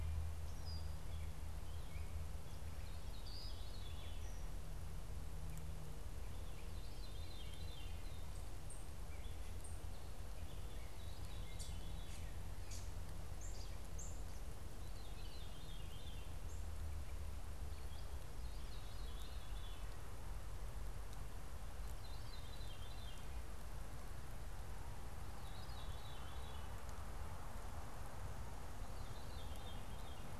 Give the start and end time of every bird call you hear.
[0.30, 2.30] unidentified bird
[2.80, 4.50] Veery (Catharus fuscescens)
[6.30, 8.20] Veery (Catharus fuscescens)
[8.40, 10.10] unidentified bird
[10.50, 12.40] Veery (Catharus fuscescens)
[11.50, 14.60] unidentified bird
[14.60, 16.40] Veery (Catharus fuscescens)
[18.40, 19.80] Veery (Catharus fuscescens)
[21.70, 30.30] Veery (Catharus fuscescens)

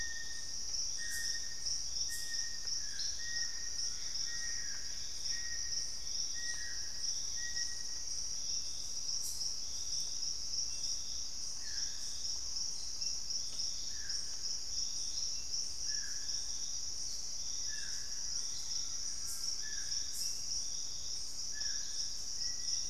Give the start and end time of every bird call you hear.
[0.00, 8.42] Little Tinamou (Crypturellus soui)
[3.02, 4.92] Collared Trogon (Trogon collaris)
[3.82, 6.02] Gray Antbird (Cercomacra cinerascens)
[11.32, 22.89] Purple-throated Fruitcrow (Querula purpurata)
[17.32, 19.82] Plain-winged Antshrike (Thamnophilus schistaceus)
[18.12, 19.82] Collared Trogon (Trogon collaris)
[22.22, 22.89] Black-faced Antthrush (Formicarius analis)

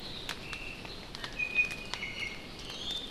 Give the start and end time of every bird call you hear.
[0.40, 1.00] Omao (Myadestes obscurus)
[1.20, 3.10] Iiwi (Drepanis coccinea)

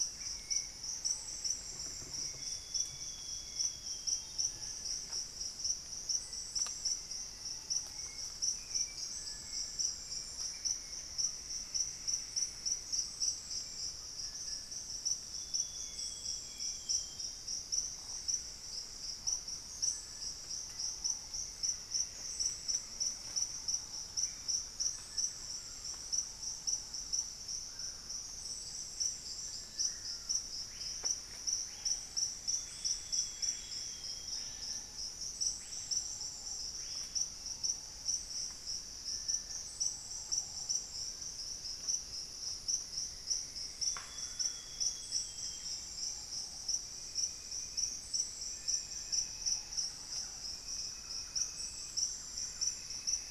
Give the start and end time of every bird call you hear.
[0.00, 0.72] Black-faced Antthrush (Formicarius analis)
[0.00, 16.92] Hauxwell's Thrush (Turdus hauxwelli)
[0.00, 53.31] Little Tinamou (Crypturellus soui)
[0.52, 8.62] Ruddy Pigeon (Patagioenas subvinacea)
[0.62, 6.12] Thrush-like Wren (Campylorhynchus turdinus)
[0.92, 3.72] unidentified bird
[2.22, 4.62] Amazonian Grosbeak (Cyanoloxia rothschildii)
[5.92, 11.02] Black-faced Antthrush (Formicarius analis)
[10.72, 13.42] unidentified bird
[11.02, 13.62] Plumbeous Antbird (Myrmelastes hyperythrus)
[15.22, 17.42] Amazonian Grosbeak (Cyanoloxia rothschildii)
[17.62, 21.92] Black Caracara (Daptrius ater)
[20.32, 41.02] Ruddy Pigeon (Patagioenas subvinacea)
[20.52, 24.62] Black-faced Antthrush (Formicarius analis)
[21.12, 25.02] Thrush-like Wren (Campylorhynchus turdinus)
[27.22, 37.32] Screaming Piha (Lipaugus vociferans)
[32.32, 34.52] Amazonian Grosbeak (Cyanoloxia rothschildii)
[43.12, 44.62] Plumbeous Antbird (Myrmelastes hyperythrus)
[43.72, 45.82] Amazonian Grosbeak (Cyanoloxia rothschildii)
[44.02, 44.92] Screaming Piha (Lipaugus vociferans)
[44.52, 53.31] Thrush-like Wren (Campylorhynchus turdinus)
[45.92, 53.31] Ruddy Pigeon (Patagioenas subvinacea)
[52.22, 53.31] Plumbeous Antbird (Myrmelastes hyperythrus)

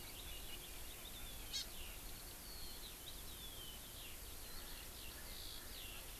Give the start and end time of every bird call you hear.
[0.00, 6.20] Eurasian Skylark (Alauda arvensis)
[1.45, 1.65] Hawaii Amakihi (Chlorodrepanis virens)
[4.45, 6.20] Erckel's Francolin (Pternistis erckelii)

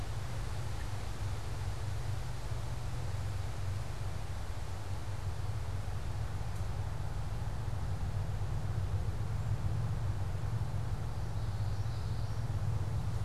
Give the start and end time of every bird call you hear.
[11.24, 12.64] Common Yellowthroat (Geothlypis trichas)

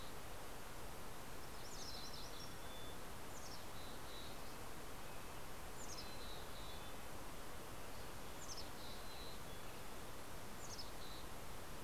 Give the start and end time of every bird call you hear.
[0.00, 0.61] Mountain Chickadee (Poecile gambeli)
[1.01, 4.11] Mountain Chickadee (Poecile gambeli)
[1.21, 2.61] MacGillivray's Warbler (Geothlypis tolmiei)
[3.91, 7.51] Red-breasted Nuthatch (Sitta canadensis)
[5.51, 7.11] Mountain Chickadee (Poecile gambeli)
[7.91, 9.61] Mountain Chickadee (Poecile gambeli)
[10.21, 11.81] Mountain Chickadee (Poecile gambeli)

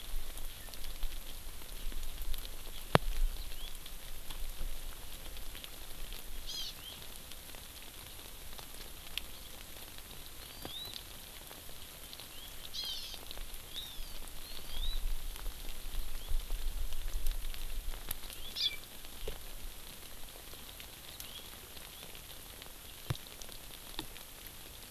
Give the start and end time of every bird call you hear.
[3.40, 3.70] House Finch (Haemorhous mexicanus)
[6.50, 6.70] Hawaii Amakihi (Chlorodrepanis virens)
[6.70, 6.90] House Finch (Haemorhous mexicanus)
[10.40, 10.90] Hawaii Amakihi (Chlorodrepanis virens)
[12.20, 12.50] House Finch (Haemorhous mexicanus)
[12.70, 13.20] Hawaii Amakihi (Chlorodrepanis virens)
[13.70, 15.00] Hawaii Amakihi (Chlorodrepanis virens)
[16.00, 16.30] House Finch (Haemorhous mexicanus)
[18.50, 18.80] Hawaii Amakihi (Chlorodrepanis virens)
[21.10, 21.40] House Finch (Haemorhous mexicanus)

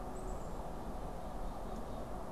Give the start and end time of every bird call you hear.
[0.00, 2.32] Black-capped Chickadee (Poecile atricapillus)

